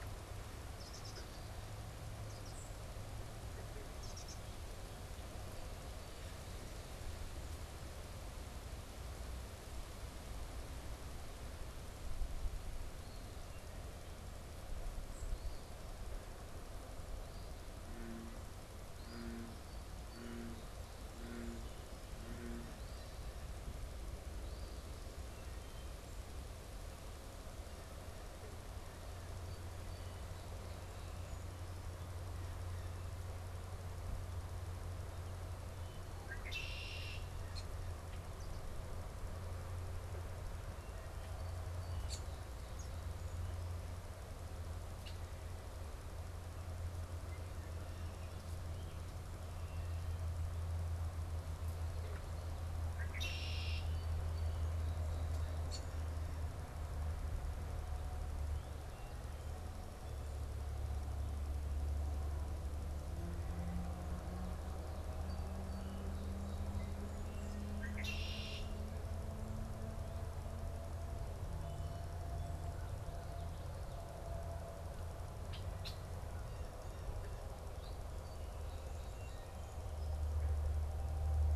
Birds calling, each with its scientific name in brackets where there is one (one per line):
unidentified bird
Eastern Phoebe (Sayornis phoebe)
Song Sparrow (Melospiza melodia)
Red-winged Blackbird (Agelaius phoeniceus)
Wood Thrush (Hylocichla mustelina)